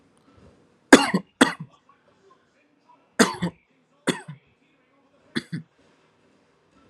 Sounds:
Cough